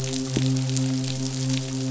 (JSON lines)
{"label": "biophony, midshipman", "recorder": "SoundTrap 500"}